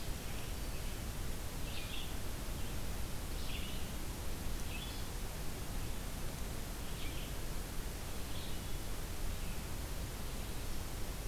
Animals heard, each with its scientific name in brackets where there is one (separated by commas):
Black-throated Green Warbler (Setophaga virens), Red-eyed Vireo (Vireo olivaceus)